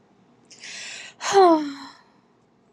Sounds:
Sigh